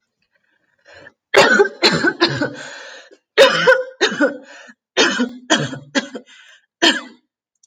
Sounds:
Cough